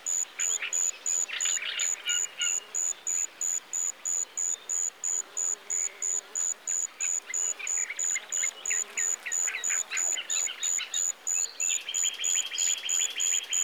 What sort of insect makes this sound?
orthopteran